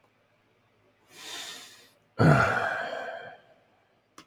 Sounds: Sigh